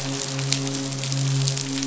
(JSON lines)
{"label": "biophony, midshipman", "recorder": "SoundTrap 500"}